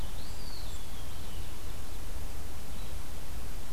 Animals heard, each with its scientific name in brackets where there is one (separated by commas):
Eastern Wood-Pewee (Contopus virens)